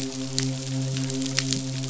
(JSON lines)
{"label": "biophony, midshipman", "recorder": "SoundTrap 500"}